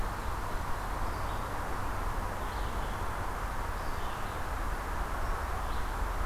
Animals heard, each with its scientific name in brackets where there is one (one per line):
Red-eyed Vireo (Vireo olivaceus)